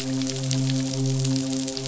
{"label": "biophony, midshipman", "recorder": "SoundTrap 500"}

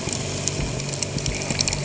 {"label": "anthrophony, boat engine", "recorder": "HydroMoth"}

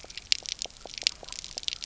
{"label": "biophony", "recorder": "SoundTrap 300"}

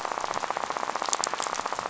{"label": "biophony, rattle", "recorder": "SoundTrap 500"}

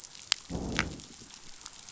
{"label": "biophony, growl", "recorder": "SoundTrap 500"}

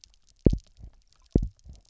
{"label": "biophony, double pulse", "recorder": "SoundTrap 300"}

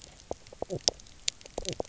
{"label": "biophony, knock croak", "recorder": "SoundTrap 300"}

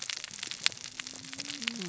{"label": "biophony, cascading saw", "recorder": "SoundTrap 600 or HydroMoth"}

